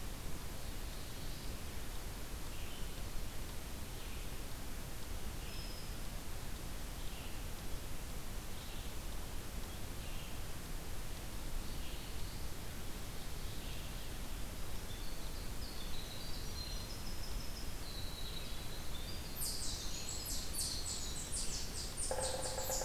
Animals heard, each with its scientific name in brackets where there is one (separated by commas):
Winter Wren (Troglodytes hiemalis), Black-throated Blue Warbler (Setophaga caerulescens), Yellow-bellied Sapsucker (Sphyrapicus varius), Eastern Wood-Pewee (Contopus virens), Red-eyed Vireo (Vireo olivaceus), unknown mammal